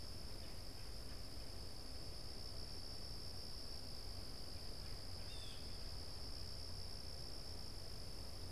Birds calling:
Blue Jay (Cyanocitta cristata), Red-bellied Woodpecker (Melanerpes carolinus)

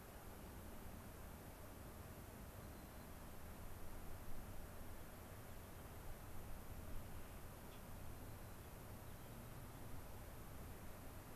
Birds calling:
unidentified bird, White-crowned Sparrow (Zonotrichia leucophrys)

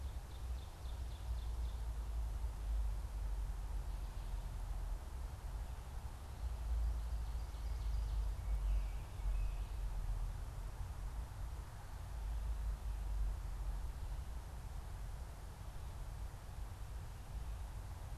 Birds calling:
Ovenbird (Seiurus aurocapilla)

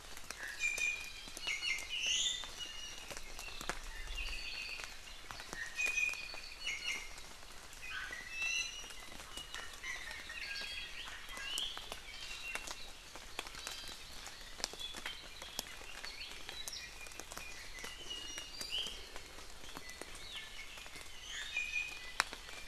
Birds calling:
Apapane (Himatione sanguinea), Iiwi (Drepanis coccinea)

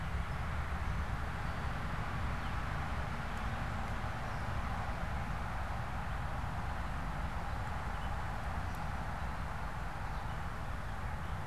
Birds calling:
Gray Catbird (Dumetella carolinensis)

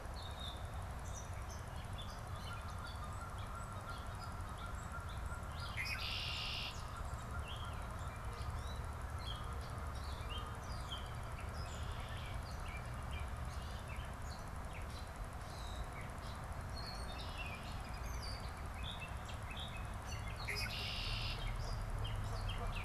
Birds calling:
Red-winged Blackbird (Agelaius phoeniceus), Gray Catbird (Dumetella carolinensis), Canada Goose (Branta canadensis), American Robin (Turdus migratorius)

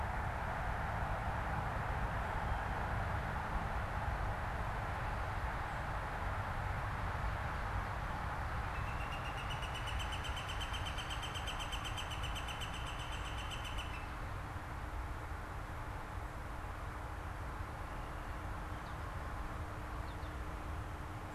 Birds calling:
Northern Flicker (Colaptes auratus), Blue Jay (Cyanocitta cristata), American Goldfinch (Spinus tristis)

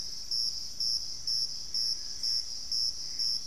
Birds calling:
Dusky-throated Antshrike (Thamnomanes ardesiacus), Gray Antbird (Cercomacra cinerascens)

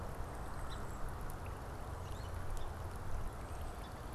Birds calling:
Golden-crowned Kinglet (Regulus satrapa), American Robin (Turdus migratorius), Song Sparrow (Melospiza melodia)

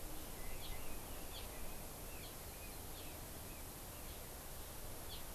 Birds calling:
Red-billed Leiothrix (Leiothrix lutea)

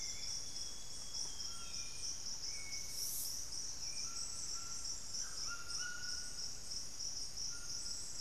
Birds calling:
Hauxwell's Thrush (Turdus hauxwelli), unidentified bird, Golden-crowned Spadebill (Platyrinchus coronatus), White-throated Toucan (Ramphastos tucanus), Amazonian Grosbeak (Cyanoloxia rothschildii), Thrush-like Wren (Campylorhynchus turdinus), Buff-breasted Wren (Cantorchilus leucotis)

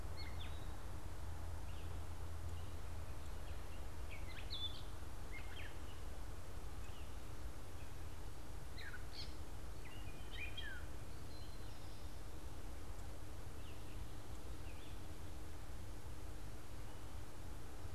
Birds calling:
Eastern Towhee (Pipilo erythrophthalmus), Red-eyed Vireo (Vireo olivaceus), Gray Catbird (Dumetella carolinensis)

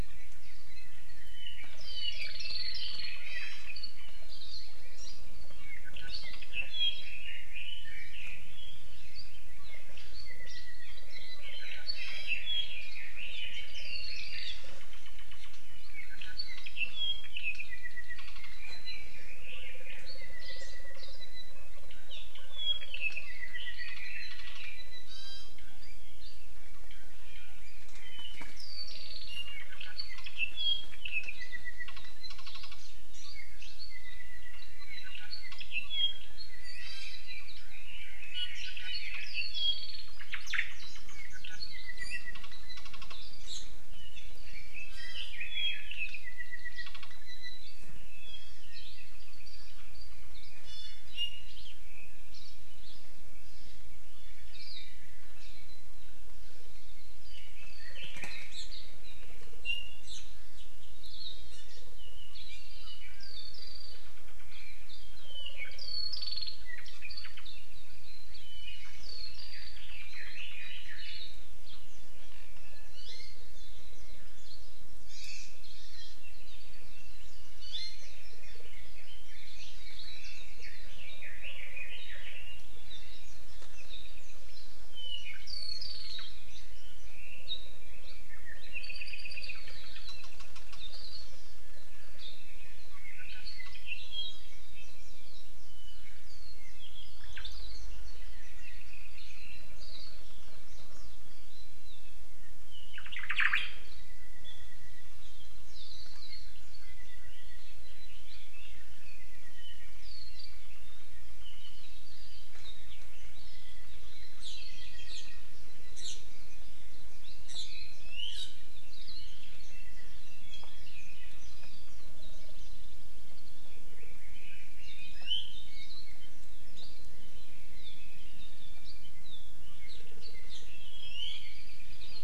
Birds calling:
Hawaii Creeper (Loxops mana), Hawaii Akepa (Loxops coccineus), Iiwi (Drepanis coccinea), Omao (Myadestes obscurus), Hawaii Amakihi (Chlorodrepanis virens), Apapane (Himatione sanguinea), Red-billed Leiothrix (Leiothrix lutea)

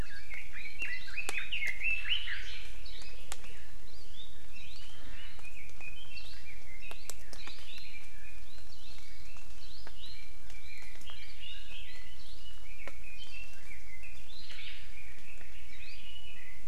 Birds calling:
Omao (Myadestes obscurus), Hawaii Amakihi (Chlorodrepanis virens), Red-billed Leiothrix (Leiothrix lutea)

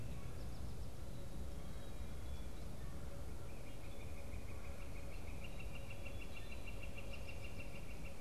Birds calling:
Northern Flicker (Colaptes auratus)

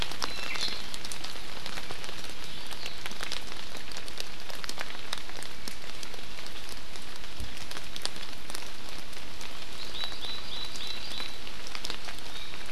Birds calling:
Hawaii Akepa (Loxops coccineus), Iiwi (Drepanis coccinea)

